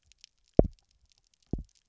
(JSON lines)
{"label": "biophony, double pulse", "recorder": "SoundTrap 300"}